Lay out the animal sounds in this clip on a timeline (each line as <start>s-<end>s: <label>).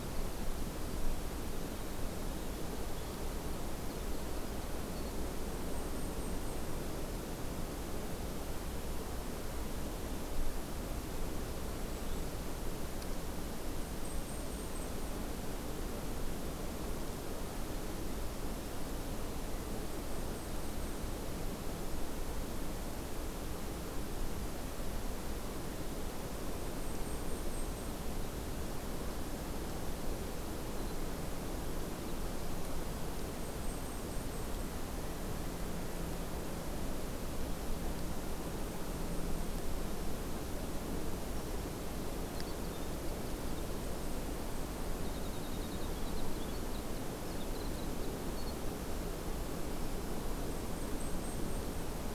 1.3s-5.1s: Winter Wren (Troglodytes hiemalis)
5.2s-6.7s: Blackpoll Warbler (Setophaga striata)
13.7s-14.9s: Blackpoll Warbler (Setophaga striata)
19.7s-21.2s: Blackpoll Warbler (Setophaga striata)
26.4s-28.0s: Blackpoll Warbler (Setophaga striata)
33.2s-34.8s: Blackpoll Warbler (Setophaga striata)
38.2s-39.7s: Blackpoll Warbler (Setophaga striata)
41.2s-48.8s: Winter Wren (Troglodytes hiemalis)
43.7s-44.9s: Blackpoll Warbler (Setophaga striata)
50.3s-52.0s: Blackpoll Warbler (Setophaga striata)